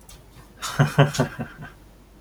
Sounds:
Laughter